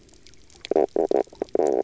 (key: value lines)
label: biophony, knock croak
recorder: SoundTrap 300